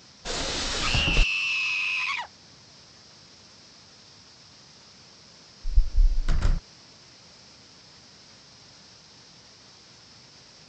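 At 0.24 seconds, you can hear wooden furniture moving. Over it, at 0.79 seconds, someone screams. Finally, at 5.64 seconds, a window closes. A soft noise persists.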